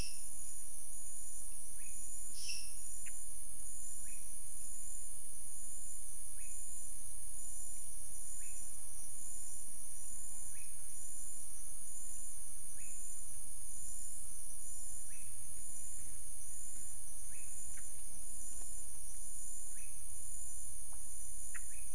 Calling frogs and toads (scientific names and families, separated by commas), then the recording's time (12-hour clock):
Leptodactylus podicipinus (Leptodactylidae)
5:45pm